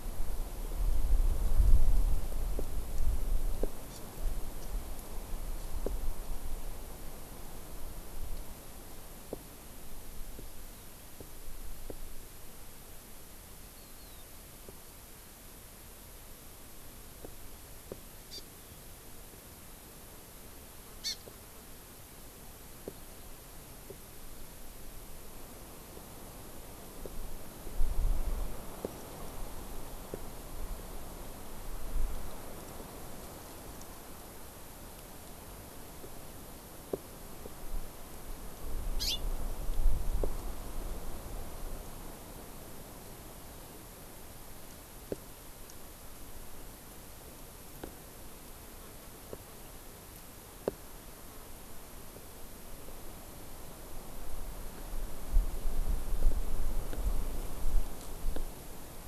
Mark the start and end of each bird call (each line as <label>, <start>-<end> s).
Hawaii Amakihi (Chlorodrepanis virens), 3.9-4.0 s
Hawaii Amakihi (Chlorodrepanis virens), 18.3-18.4 s
Hawaii Amakihi (Chlorodrepanis virens), 21.0-21.2 s
Hawaii Amakihi (Chlorodrepanis virens), 38.9-39.2 s